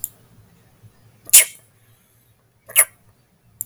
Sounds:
Sneeze